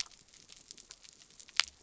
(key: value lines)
label: biophony
recorder: SoundTrap 300